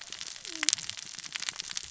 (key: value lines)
label: biophony, cascading saw
recorder: SoundTrap 600 or HydroMoth